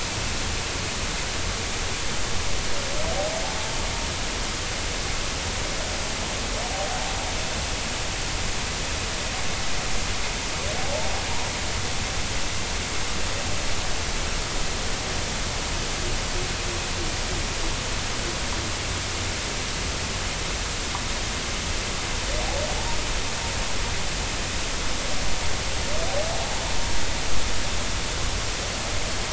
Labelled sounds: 10.8	11.1	humpback whale, 0.80 to 0.93 kHz

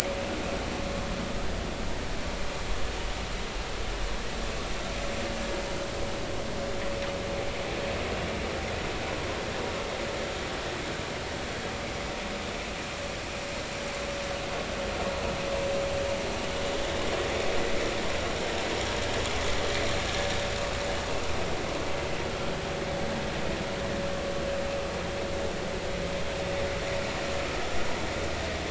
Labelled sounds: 20.1	20.3	vessel noise, 1.7 to 1.8 kHz

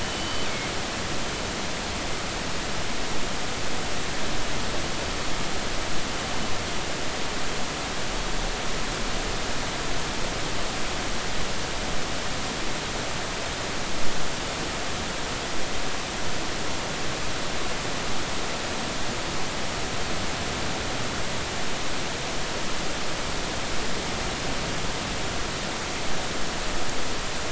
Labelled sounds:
0.0	0.5	killer whale, northern resident, G clan, 2.9 to 4.7 kHz

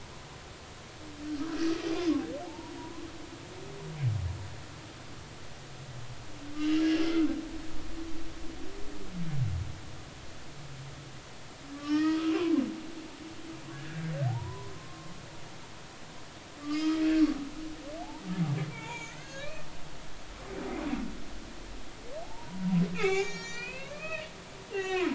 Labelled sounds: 2.5	2.7	humpback whale, 0.80 to 1.0 kHz
6.6	7.3	humpback whale, 1.2 to 3.1 kHz
11.7	12.2	humpback whale, 1.1 to 5.2 kHz
13.7	15.1	humpback whale, 0.80 to 1.8 kHz
16.6	17.1	humpback whale, 1.1 to 3.3 kHz
18.7	19.5	humpback whale, 0.86 to 7.0 kHz
20.1	20.4	humpback whale, 2.4 to 2.8 kHz
22.2	22.7	humpback whale, 0.80 to 1.0 kHz
22.9	25.1	humpback whale, 0.80 to 7.2 kHz

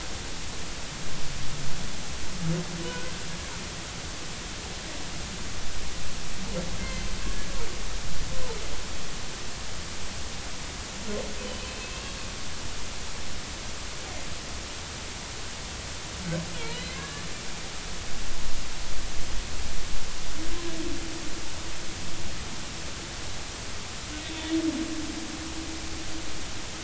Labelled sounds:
2.8	3.1	humpback whale, 1.4 to 1.6 kHz
6.8	7.5	humpback whale, 1.5 to 2.2 kHz
11.4	12.2	humpback whale, 2.3 to 3.1 kHz
16.7	17.3	humpback whale, 1.6 to 4.1 kHz
24.2	24.5	humpback whale, 3.5 to 3.6 kHz

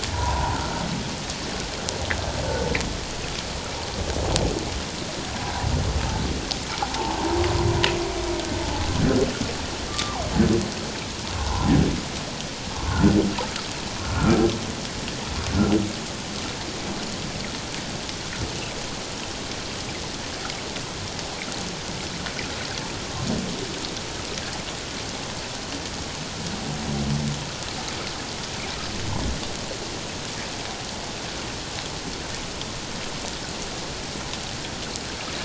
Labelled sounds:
0.1	0.6	humpback whale, 0.78 to 1.1 kHz
6.8	7.2	humpback whale, 0.78 to 0.94 kHz
9.9	10.3	humpback whale, 0.78 to 1.2 kHz
11.3	11.7	humpback whale, 0.78 to 1.1 kHz
12.9	13.1	humpback whale, 1.3 to 1.6 kHz
14.0	14.4	humpback whale, 1.2 to 1.5 kHz

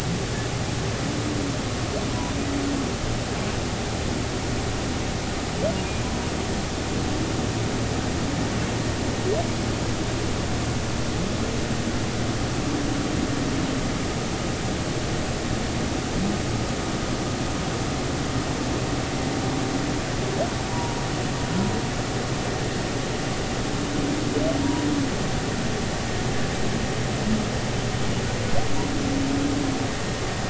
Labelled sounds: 20.7	21.0	humpback whale, 0.90 to 1.0 kHz
24.6	24.9	humpback whale, 0.90 to 1.0 kHz

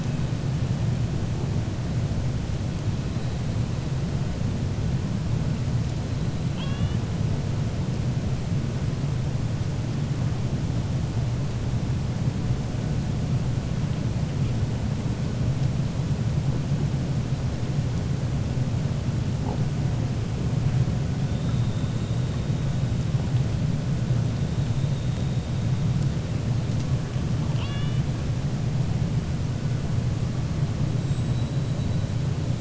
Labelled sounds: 6.4	7.0	killer whale, 0.93 to 3.9 kHz
27.4	28.0	killer whale, 0.90 to 4.7 kHz
30.9	31.7	killer whale, 7.4 to 7.9 kHz

